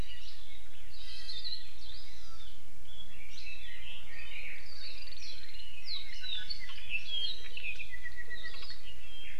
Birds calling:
Hawaii Amakihi (Chlorodrepanis virens), Red-billed Leiothrix (Leiothrix lutea), Apapane (Himatione sanguinea), Iiwi (Drepanis coccinea), Hawaii Creeper (Loxops mana)

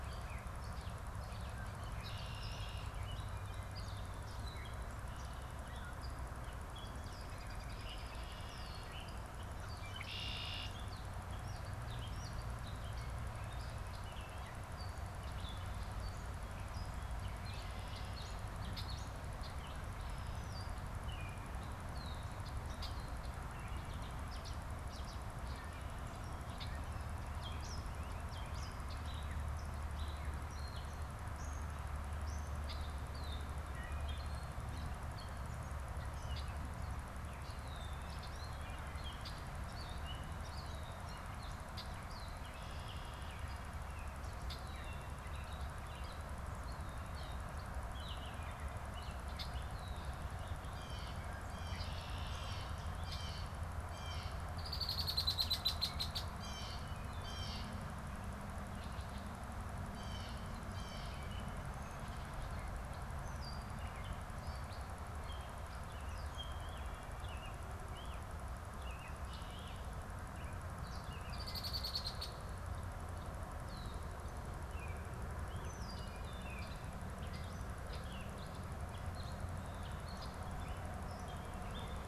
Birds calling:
Blue Jay (Cyanocitta cristata), American Robin (Turdus migratorius), Red-winged Blackbird (Agelaius phoeniceus), Gray Catbird (Dumetella carolinensis)

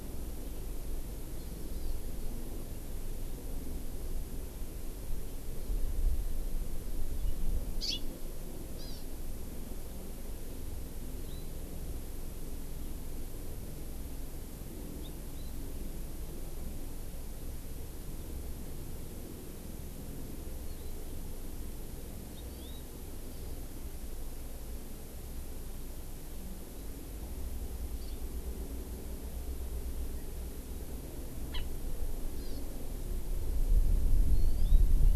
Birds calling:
Hawaii Amakihi (Chlorodrepanis virens)

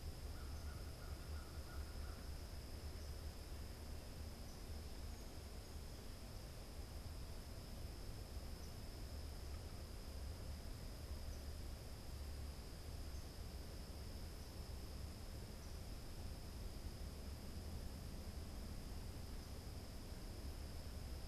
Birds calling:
American Crow (Corvus brachyrhynchos)

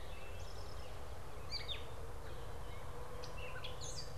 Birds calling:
Gray Catbird (Dumetella carolinensis), Eastern Towhee (Pipilo erythrophthalmus)

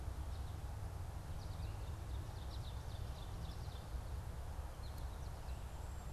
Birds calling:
Ovenbird (Seiurus aurocapilla), American Goldfinch (Spinus tristis)

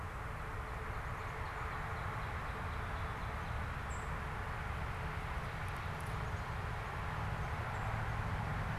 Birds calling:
unidentified bird, Black-capped Chickadee (Poecile atricapillus), Northern Cardinal (Cardinalis cardinalis)

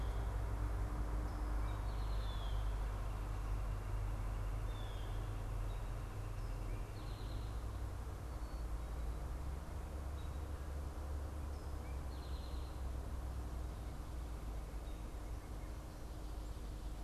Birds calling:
Blue Jay (Cyanocitta cristata), Eastern Towhee (Pipilo erythrophthalmus)

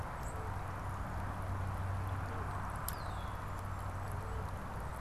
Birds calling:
unidentified bird, Red-winged Blackbird (Agelaius phoeniceus)

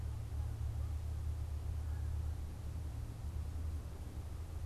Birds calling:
Canada Goose (Branta canadensis)

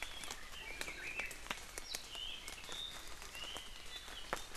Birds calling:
Apapane (Himatione sanguinea)

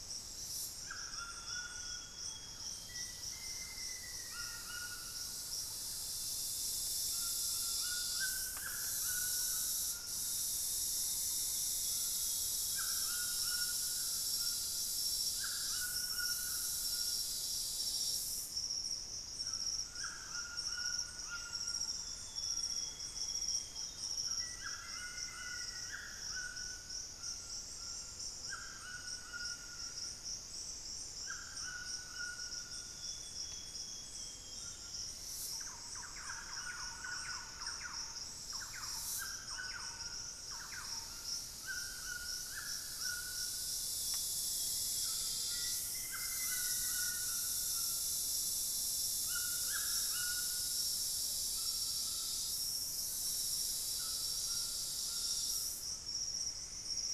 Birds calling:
Black-faced Antthrush (Formicarius analis), White-throated Toucan (Ramphastos tucanus), Thrush-like Wren (Campylorhynchus turdinus), Amazonian Grosbeak (Cyanoloxia rothschildii), Plumbeous Antbird (Myrmelastes hyperythrus), unidentified bird

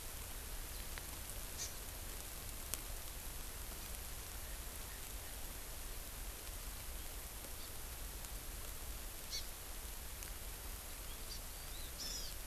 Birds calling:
Hawaiian Hawk (Buteo solitarius), Hawaii Amakihi (Chlorodrepanis virens)

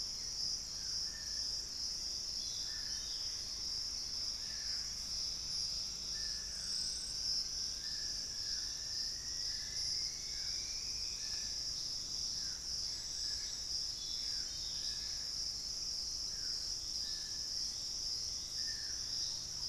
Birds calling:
Thrush-like Wren (Campylorhynchus turdinus), unidentified bird, Gray Antbird (Cercomacra cinerascens), Cinnamon-rumped Foliage-gleaner (Philydor pyrrhodes), Black-faced Antthrush (Formicarius analis), Dusky-throated Antshrike (Thamnomanes ardesiacus)

